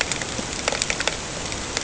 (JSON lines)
{"label": "ambient", "recorder": "HydroMoth"}